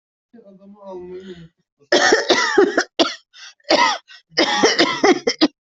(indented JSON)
{
  "expert_labels": [
    {
      "quality": "ok",
      "cough_type": "dry",
      "dyspnea": false,
      "wheezing": false,
      "stridor": false,
      "choking": false,
      "congestion": false,
      "nothing": true,
      "diagnosis": "COVID-19",
      "severity": "mild"
    },
    {
      "quality": "ok",
      "cough_type": "dry",
      "dyspnea": false,
      "wheezing": false,
      "stridor": false,
      "choking": true,
      "congestion": false,
      "nothing": false,
      "diagnosis": "COVID-19",
      "severity": "mild"
    },
    {
      "quality": "good",
      "cough_type": "wet",
      "dyspnea": false,
      "wheezing": false,
      "stridor": false,
      "choking": false,
      "congestion": false,
      "nothing": true,
      "diagnosis": "lower respiratory tract infection",
      "severity": "severe"
    },
    {
      "quality": "good",
      "cough_type": "dry",
      "dyspnea": false,
      "wheezing": false,
      "stridor": false,
      "choking": false,
      "congestion": false,
      "nothing": true,
      "diagnosis": "COVID-19",
      "severity": "severe"
    }
  ],
  "age": 44,
  "gender": "female",
  "respiratory_condition": false,
  "fever_muscle_pain": false,
  "status": "healthy"
}